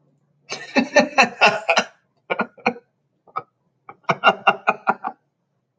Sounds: Laughter